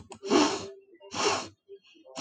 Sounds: Sneeze